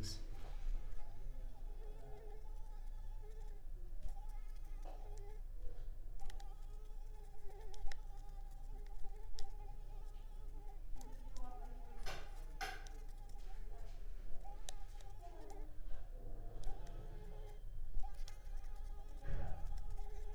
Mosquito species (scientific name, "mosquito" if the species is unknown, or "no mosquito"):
Mansonia uniformis